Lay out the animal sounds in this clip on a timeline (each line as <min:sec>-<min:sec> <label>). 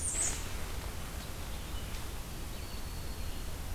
0:00.0-0:00.5 Blackburnian Warbler (Setophaga fusca)
0:00.0-0:03.7 Red-eyed Vireo (Vireo olivaceus)
0:02.3-0:03.7 Broad-winged Hawk (Buteo platypterus)